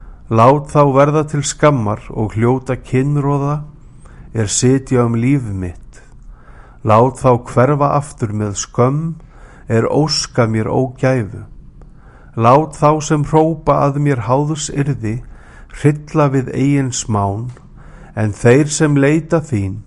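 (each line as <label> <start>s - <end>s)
A person is speaking with occasional pauses. 0.3s - 5.8s
A person is speaking with occasional pauses. 6.8s - 11.5s
A person is speaking with occasional pauses. 12.4s - 19.9s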